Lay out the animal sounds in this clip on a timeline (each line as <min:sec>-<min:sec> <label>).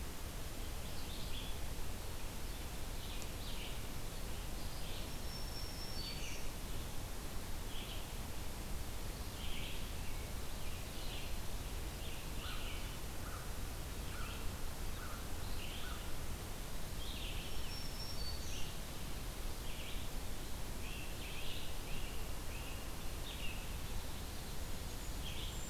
0:00.0-0:25.7 Red-eyed Vireo (Vireo olivaceus)
0:05.1-0:06.4 Black-throated Green Warbler (Setophaga virens)
0:12.2-0:16.1 American Crow (Corvus brachyrhynchos)
0:17.2-0:18.8 Black-throated Green Warbler (Setophaga virens)
0:20.7-0:22.9 Great Crested Flycatcher (Myiarchus crinitus)